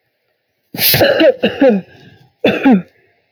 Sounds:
Cough